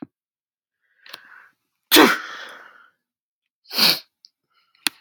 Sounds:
Sneeze